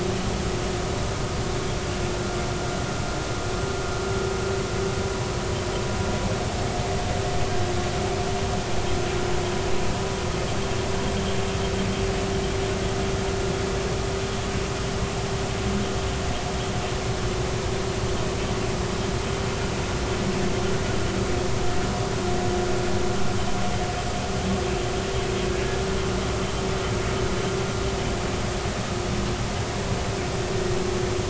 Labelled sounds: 25.5	25.8	humpback whale, 1.6 to 1.7 kHz

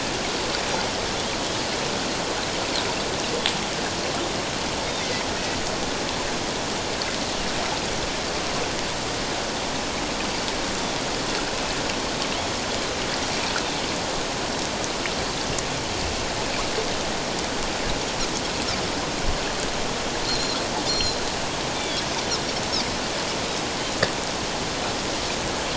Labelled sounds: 5.3	5.6	Pacific white-sided dolphin, 1.8 to 2.0 kHz
20.3	21.2	Pacific white-sided dolphin, 4.0 to 7.2 kHz
21.7	22.0	Pacific white-sided dolphin, 3.2 to 3.6 kHz

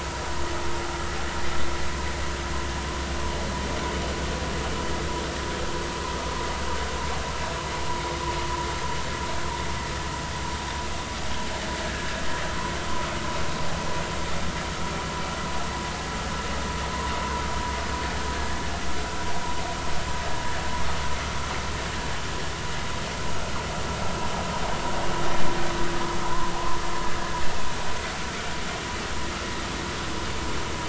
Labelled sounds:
26.2	26.5	vessel noise, 0.86 to 1.1 kHz

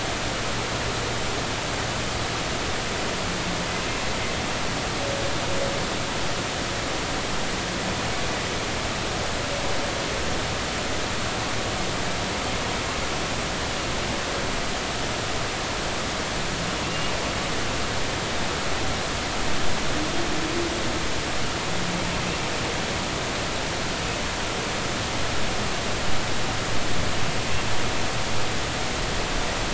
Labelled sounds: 16.8	17.1	humpback whale, 2.6 to 2.9 kHz

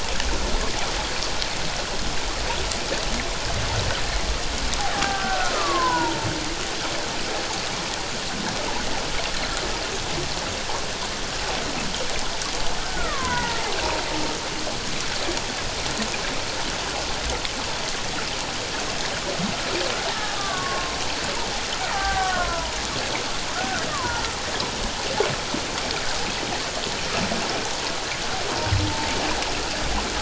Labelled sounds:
5.0	6.3	killer whale, Bigg's (transient), 0.78 to 1.7 kHz
12.8	13.6	killer whale, Bigg's (transient), 0.84 to 2.0 kHz
20.1	21.0	killer whale, Bigg's (transient), 0.97 to 1.9 kHz
21.9	22.8	killer whale, Bigg's (transient), 0.78 to 1.6 kHz
23.5	24.2	killer whale, Bigg's (transient), 0.81 to 1.6 kHz

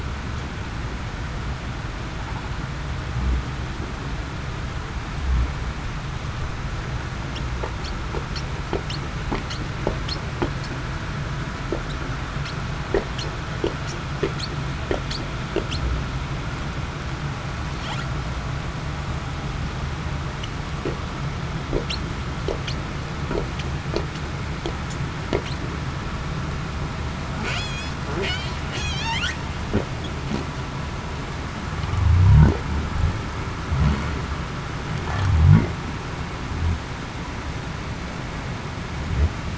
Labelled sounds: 27.6	27.9	humpback whale, 3.2 to 4.3 kHz
28.7	29.1	humpback whale, 3.0 to 3.6 kHz

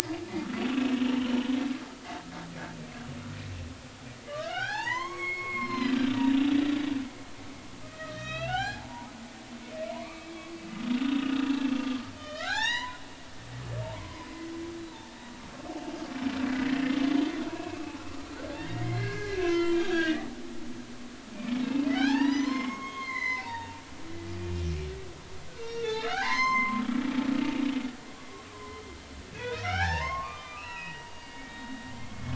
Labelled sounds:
1.0	1.4	humpback whale, 2.7 to 3.2 kHz
4.3	6.0	humpback whale, 0.80 to 6.7 kHz
7.8	9.1	humpback whale, 0.80 to 6.0 kHz
9.9	10.4	humpback whale, 0.86 to 2.7 kHz
12.2	13.0	humpback whale, 0.80 to 7.2 kHz
13.8	14.4	humpback whale, 0.86 to 5.2 kHz
18.6	20.3	humpback whale, 0.93 to 6.7 kHz
21.9	23.8	humpback whale, 0.80 to 6.5 kHz
24.4	24.7	humpback whale, 2.3 to 2.5 kHz
25.6	26.8	humpback whale, 0.80 to 7.4 kHz
28.5	32.3	humpback whale, 0.80 to 5.8 kHz

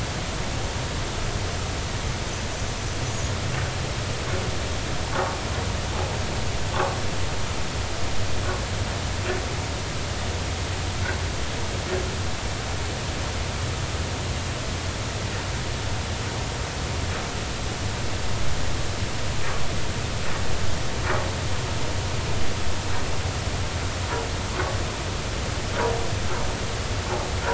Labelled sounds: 3.0	3.3	vessel noise, 6.6 to 6.8 kHz
6.7	7.0	vessel noise, 1.0 to 1.3 kHz

